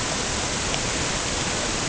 {"label": "ambient", "recorder": "HydroMoth"}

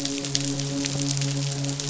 {"label": "biophony, midshipman", "recorder": "SoundTrap 500"}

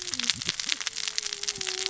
{"label": "biophony, cascading saw", "recorder": "SoundTrap 600 or HydroMoth"}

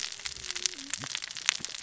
{"label": "biophony, cascading saw", "recorder": "SoundTrap 600 or HydroMoth"}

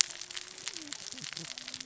{"label": "biophony, cascading saw", "recorder": "SoundTrap 600 or HydroMoth"}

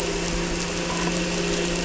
{"label": "anthrophony, boat engine", "recorder": "SoundTrap 300"}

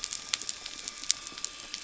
{"label": "anthrophony, boat engine", "recorder": "SoundTrap 300"}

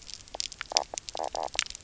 {"label": "biophony, knock croak", "recorder": "SoundTrap 300"}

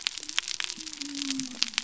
{"label": "biophony", "recorder": "SoundTrap 300"}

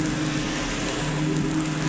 {"label": "anthrophony, boat engine", "recorder": "SoundTrap 500"}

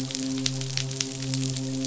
{"label": "biophony, midshipman", "recorder": "SoundTrap 500"}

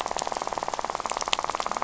{"label": "biophony, rattle", "recorder": "SoundTrap 500"}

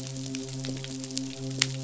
{"label": "biophony, midshipman", "recorder": "SoundTrap 500"}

